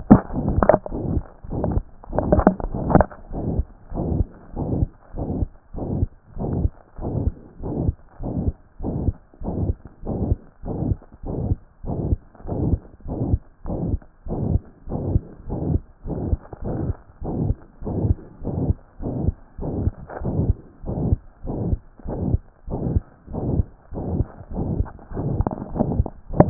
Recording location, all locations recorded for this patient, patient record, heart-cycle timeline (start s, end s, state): pulmonary valve (PV)
aortic valve (AV)+pulmonary valve (PV)+tricuspid valve (TV)+mitral valve (MV)
#Age: Child
#Sex: Male
#Height: 126.0 cm
#Weight: 30.7 kg
#Pregnancy status: False
#Murmur: Present
#Murmur locations: aortic valve (AV)+mitral valve (MV)+pulmonary valve (PV)+tricuspid valve (TV)
#Most audible location: pulmonary valve (PV)
#Systolic murmur timing: Holosystolic
#Systolic murmur shape: Plateau
#Systolic murmur grading: III/VI or higher
#Systolic murmur pitch: Medium
#Systolic murmur quality: Harsh
#Diastolic murmur timing: nan
#Diastolic murmur shape: nan
#Diastolic murmur grading: nan
#Diastolic murmur pitch: nan
#Diastolic murmur quality: nan
#Outcome: Abnormal
#Campaign: 2014 screening campaign
0.00	3.93	unannotated
3.93	4.06	S1
4.06	4.14	systole
4.14	4.26	S2
4.26	4.58	diastole
4.58	4.68	S1
4.68	4.76	systole
4.76	4.88	S2
4.88	5.18	diastole
5.18	5.28	S1
5.28	5.38	systole
5.38	5.48	S2
5.48	5.78	diastole
5.78	5.86	S1
5.86	5.96	systole
5.96	6.08	S2
6.08	6.42	diastole
6.42	6.50	S1
6.50	6.58	systole
6.58	6.70	S2
6.70	7.04	diastole
7.04	7.12	S1
7.12	7.22	systole
7.22	7.32	S2
7.32	7.66	diastole
7.66	7.74	S1
7.74	7.82	systole
7.82	7.94	S2
7.94	8.24	diastole
8.24	8.34	S1
8.34	8.44	systole
8.44	8.54	S2
8.54	8.82	diastole
8.82	8.94	S1
8.94	9.04	systole
9.04	9.14	S2
9.14	9.46	diastole
9.46	9.54	S1
9.54	9.62	systole
9.62	9.74	S2
9.74	10.10	diastole
10.10	10.18	S1
10.18	10.26	systole
10.26	10.38	S2
10.38	10.68	diastole
10.68	10.76	S1
10.76	10.86	systole
10.86	10.96	S2
10.96	11.28	diastole
11.28	11.36	S1
11.36	11.46	systole
11.46	11.56	S2
11.56	11.88	diastole
11.88	11.98	S1
11.98	12.08	systole
12.08	12.18	S2
12.18	12.48	diastole
12.48	26.50	unannotated